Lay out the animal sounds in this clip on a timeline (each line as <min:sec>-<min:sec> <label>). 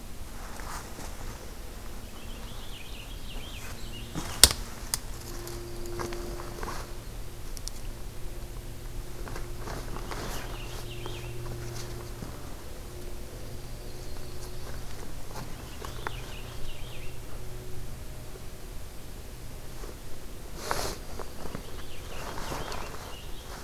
0:02.0-0:04.2 Purple Finch (Haemorhous purpureus)
0:05.3-0:07.0 Dark-eyed Junco (Junco hyemalis)
0:09.9-0:11.5 Purple Finch (Haemorhous purpureus)
0:12.9-0:14.3 Dark-eyed Junco (Junco hyemalis)
0:13.6-0:15.1 Yellow-rumped Warbler (Setophaga coronata)
0:15.4-0:17.4 Purple Finch (Haemorhous purpureus)
0:20.4-0:21.9 Dark-eyed Junco (Junco hyemalis)
0:21.3-0:23.6 Purple Finch (Haemorhous purpureus)